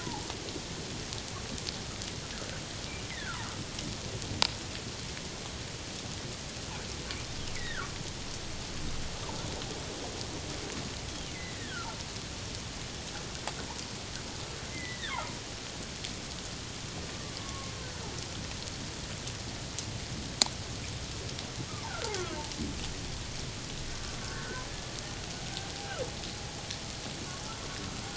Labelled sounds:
0.0	0.3	humpback whale, 0.78 to 1.1 kHz
3.1	3.4	humpback whale, 1.2 to 2.2 kHz
7.5	8.0	humpback whale, 1.1 to 2.3 kHz
11.3	12.0	humpback whale, 1.2 to 2.2 kHz
14.7	15.4	humpback whale, 0.78 to 2.2 kHz
17.4	17.7	humpback whale, 1.0 to 1.2 kHz
21.9	22.1	humpback whale, 1.3 to 1.6 kHz
24.2	24.6	humpback whale, 1.4 to 1.6 kHz

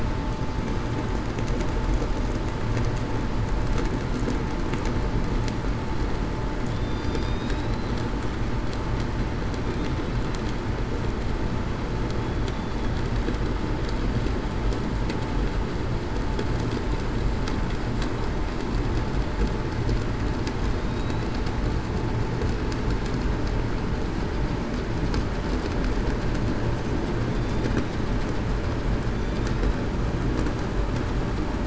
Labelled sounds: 6.7	7.9	killer whale, southern resident, 3.5 to 5.0 kHz
20.9	21.3	killer whale, southern resident, 3.7 to 4.1 kHz
27.3	27.7	killer whale, southern resident, 3.4 to 3.6 kHz

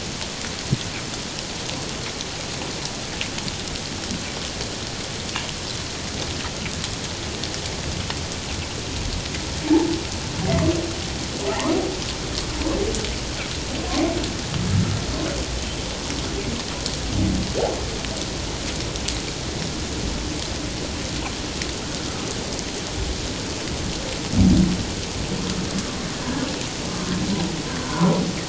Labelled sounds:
9.6	9.9	humpback whale, 0.78 to 0.97 kHz
11.5	11.8	humpback whale, 0.78 to 1.3 kHz
27.8	28.2	humpback whale, 0.91 to 1.6 kHz

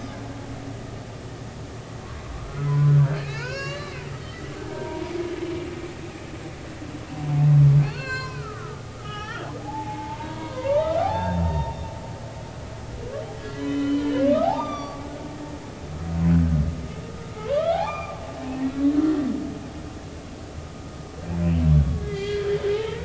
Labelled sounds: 2.3	5.1	humpback whale, 0.83 to 7.4 kHz
7.8	11.7	humpback whale, 0.80 to 5.7 kHz
13.4	15.0	humpback whale, 0.80 to 6.0 kHz
17.5	18.2	humpback whale, 0.80 to 2.6 kHz
18.7	18.9	humpback whale, 3.8 to 4.0 kHz
21.9	23.0	humpback whale, 0.80 to 4.6 kHz

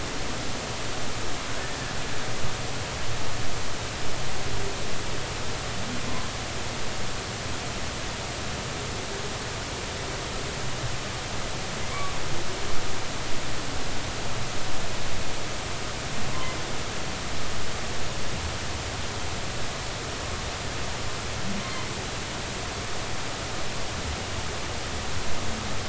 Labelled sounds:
6.0	6.3	humpback whale, 0.96 to 1.1 kHz
21.6	21.9	humpback whale, 2.0 to 2.2 kHz

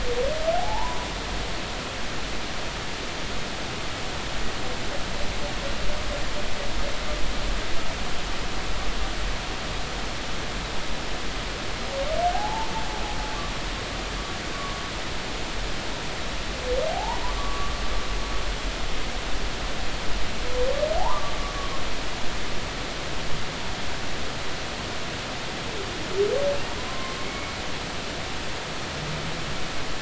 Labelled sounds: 0.6	1.1	humpback whale, 0.80 to 1.1 kHz
12.3	12.7	humpback whale, 0.80 to 1.0 kHz
14.5	14.8	humpback whale, 1.0 to 1.2 kHz
16.9	17.7	humpback whale, 0.80 to 1.2 kHz
21.0	21.3	humpback whale, 0.80 to 1.2 kHz
26.9	27.6	humpback whale, 0.99 to 2.3 kHz

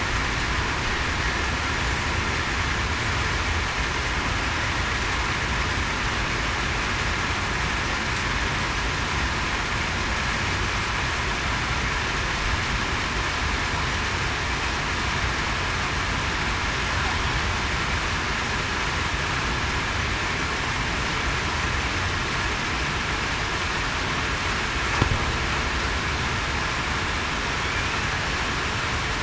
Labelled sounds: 27.6	28.0	killer whale, southern resident, 2.2 to 2.7 kHz

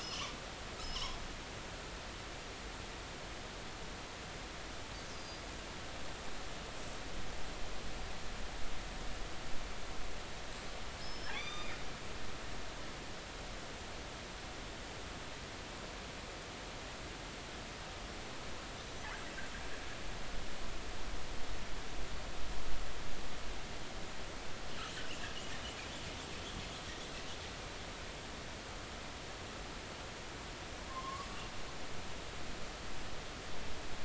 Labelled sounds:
0.0	1.2	killer whale, northern resident, 2.7 to 5.6 kHz
5.1	5.4	killer whale, northern resident, 4.7 to 5.0 kHz
11.0	11.8	killer whale, northern resident, 1.1 to 6.1 kHz
18.8	19.1	killer whale, northern resident, 5.9 to 6.1 kHz
30.9	31.3	killer whale, northern resident, 0.99 to 1.2 kHz

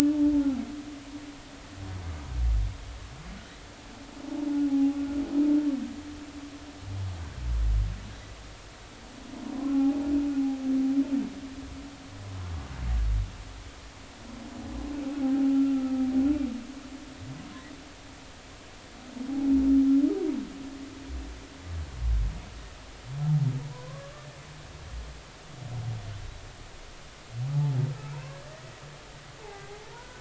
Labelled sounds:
0.3	0.6	humpback whale, 0.80 to 0.93 kHz
4.7	5.0	humpback whale, 0.80 to 0.86 kHz
9.6	10.0	humpback whale, 0.80 to 1.5 kHz
15.2	16.0	humpback whale, 0.80 to 1.4 kHz
23.7	24.1	humpback whale, 0.93 to 1.2 kHz
29.4	30.1	humpback whale, 1.4 to 2.2 kHz

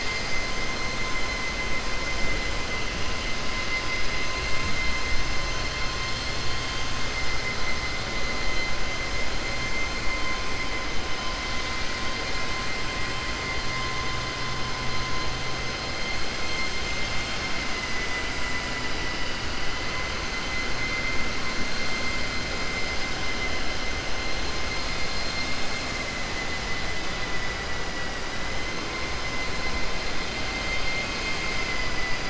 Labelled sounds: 24.7	25.7	vessel noise, 2.8 to 5.1 kHz
26.9	27.5	vessel noise, 1.0 to 3.0 kHz

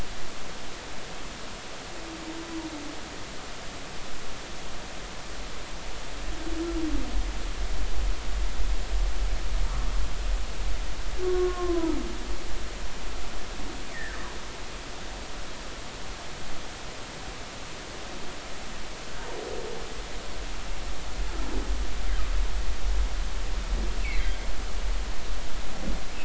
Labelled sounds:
11.2	12.0	humpback whale, 0.86 to 1.2 kHz
13.9	14.2	humpback whale, 1.5 to 2.1 kHz
24.0	24.3	humpback whale, 1.9 to 2.8 kHz

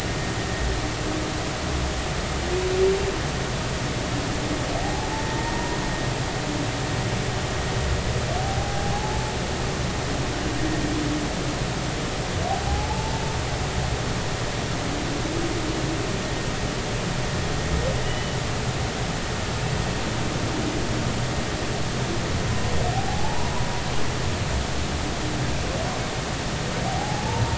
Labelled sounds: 4.8	5.8	humpback whale, 0.80 to 0.99 kHz
8.4	9.3	humpback whale, 0.80 to 0.99 kHz
12.5	13.2	humpback whale, 0.80 to 0.93 kHz
18.0	18.4	humpback whale, 2.8 to 3.0 kHz
22.9	23.5	humpback whale, 0.80 to 1.0 kHz
26.9	27.5	humpback whale, 0.80 to 0.99 kHz

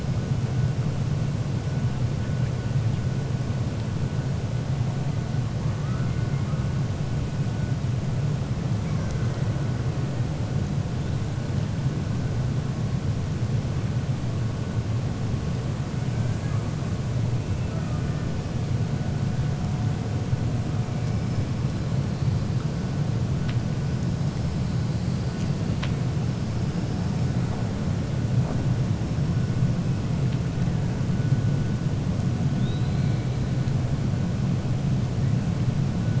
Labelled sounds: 16.1	16.6	killer whale, 0.82 to 2.4 kHz
32.5	33.3	killer whale, 3.3 to 4.3 kHz

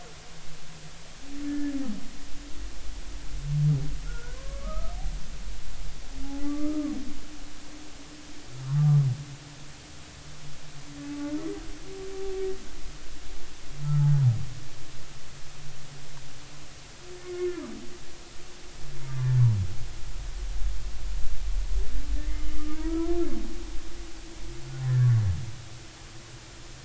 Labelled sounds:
1.5	1.8	humpback whale, 1.7 to 1.8 kHz
4.0	4.9	humpback whale, 0.99 to 1.6 kHz
6.4	6.9	humpback whale, 1.1 to 1.3 kHz
8.7	9.0	humpback whale, 0.93 to 1.2 kHz
11.0	11.3	humpback whale, 0.83 to 0.90 kHz
13.8	14.1	humpback whale, 1.2 to 1.4 kHz
22.5	23.2	humpback whale, 0.90 to 1.4 kHz
24.8	25.1	humpback whale, 1.5 to 1.9 kHz

